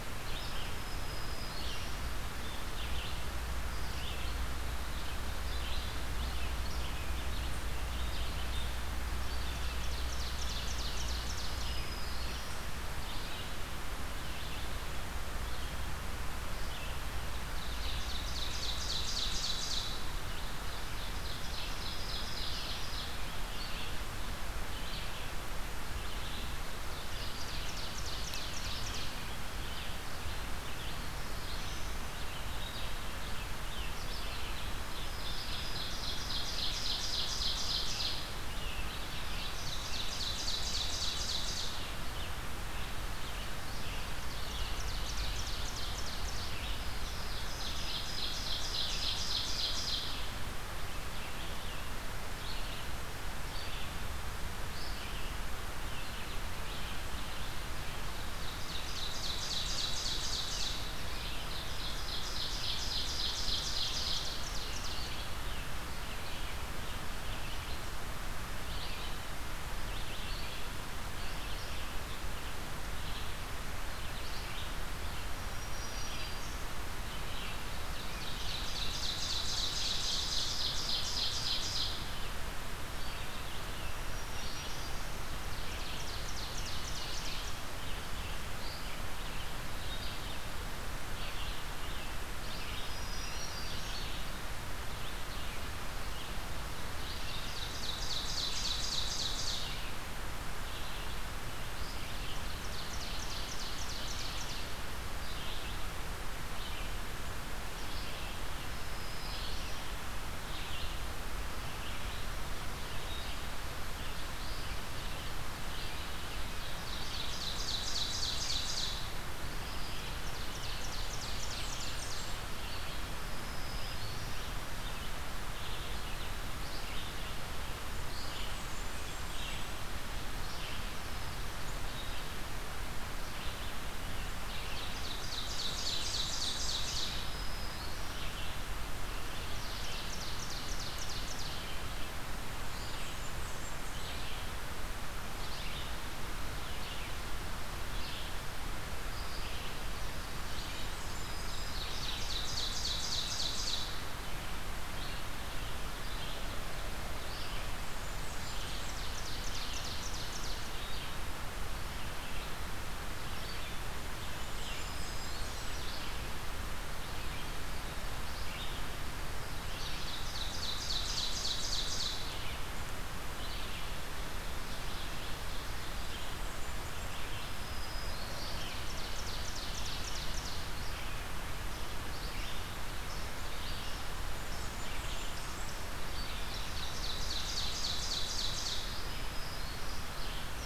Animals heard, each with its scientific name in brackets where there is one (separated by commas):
Black-throated Green Warbler (Setophaga virens), Red-eyed Vireo (Vireo olivaceus), Black-throated Blue Warbler (Setophaga caerulescens), Blackburnian Warbler (Setophaga fusca), Ovenbird (Seiurus aurocapilla)